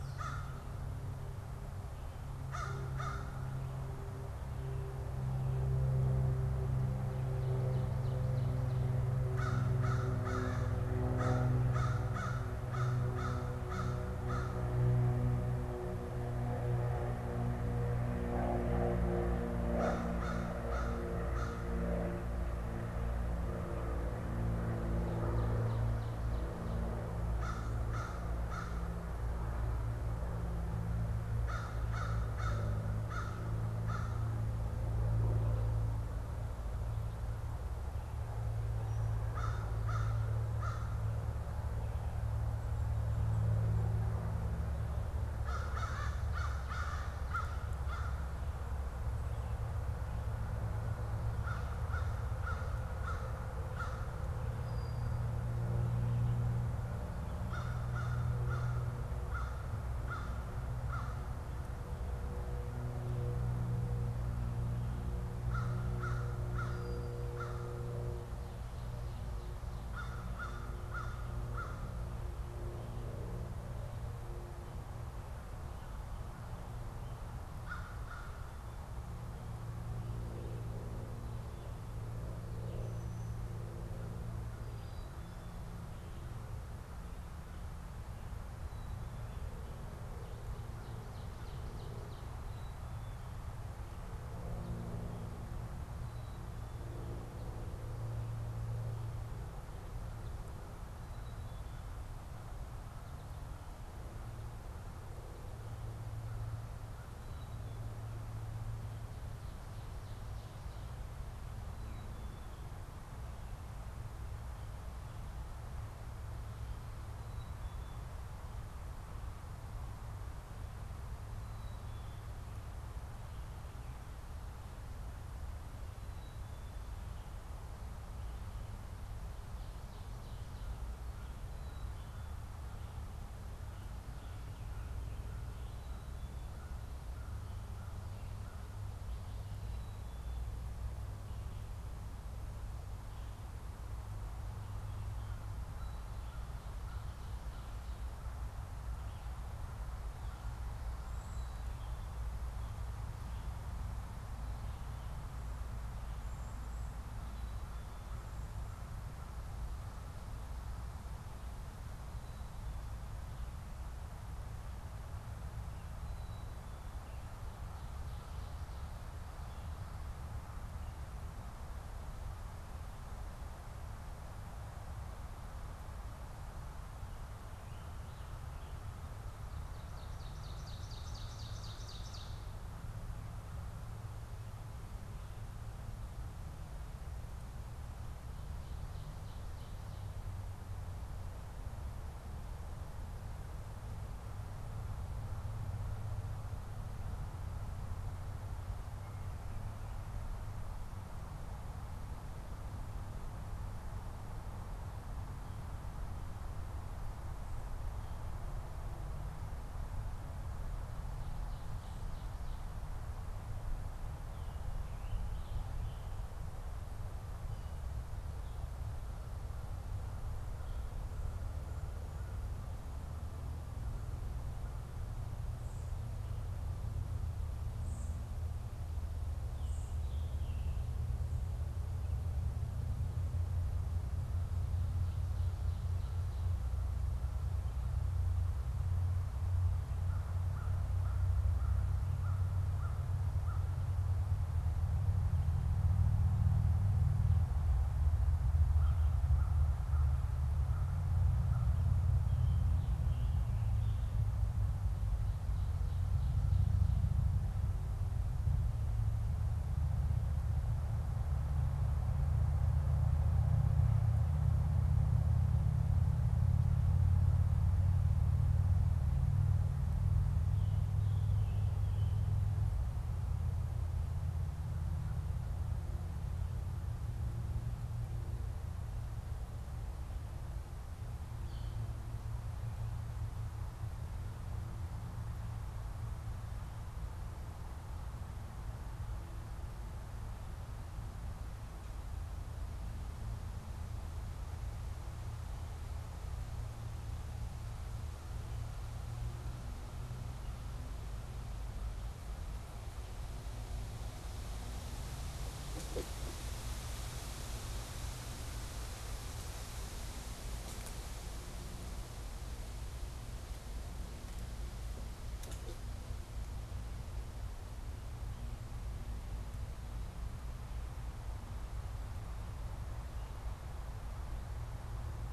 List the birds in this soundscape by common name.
American Crow, Common Yellowthroat, Ovenbird, Brown-headed Cowbird, Black-capped Chickadee, Cedar Waxwing, Scarlet Tanager, Red-eyed Vireo